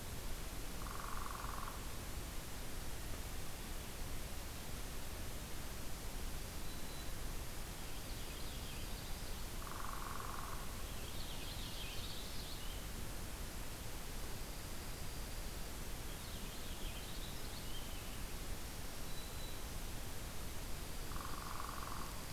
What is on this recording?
Northern Flicker, Black-throated Green Warbler, Purple Finch, Dark-eyed Junco, Ovenbird